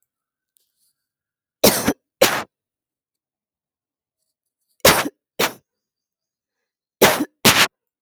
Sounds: Cough